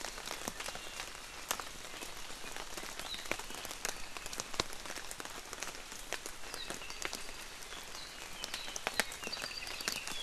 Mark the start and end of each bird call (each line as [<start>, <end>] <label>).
[6.78, 7.48] Apapane (Himatione sanguinea)
[9.18, 10.08] Apapane (Himatione sanguinea)